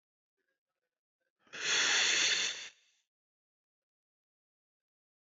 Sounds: Sigh